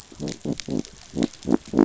{"label": "biophony", "recorder": "SoundTrap 500"}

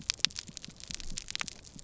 {"label": "biophony", "recorder": "SoundTrap 300"}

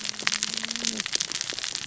{"label": "biophony, cascading saw", "recorder": "SoundTrap 600 or HydroMoth"}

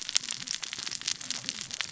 {"label": "biophony, cascading saw", "recorder": "SoundTrap 600 or HydroMoth"}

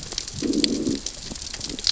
{"label": "biophony, growl", "recorder": "SoundTrap 600 or HydroMoth"}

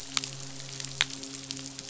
{"label": "biophony, midshipman", "recorder": "SoundTrap 500"}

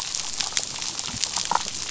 {"label": "biophony, damselfish", "recorder": "SoundTrap 500"}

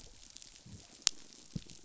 {"label": "biophony, chatter", "recorder": "SoundTrap 500"}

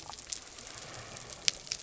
{"label": "biophony", "recorder": "SoundTrap 300"}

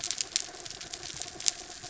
{"label": "anthrophony, mechanical", "recorder": "SoundTrap 300"}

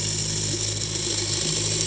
{"label": "anthrophony, boat engine", "recorder": "HydroMoth"}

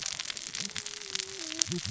{"label": "biophony, cascading saw", "recorder": "SoundTrap 600 or HydroMoth"}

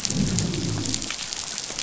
{"label": "biophony, growl", "recorder": "SoundTrap 500"}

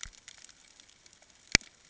{"label": "ambient", "recorder": "HydroMoth"}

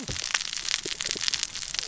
{"label": "biophony, cascading saw", "recorder": "SoundTrap 600 or HydroMoth"}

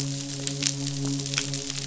{"label": "biophony, midshipman", "recorder": "SoundTrap 500"}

